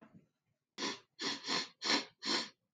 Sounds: Sniff